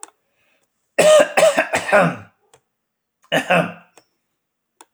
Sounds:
Throat clearing